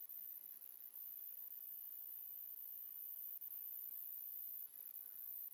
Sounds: Throat clearing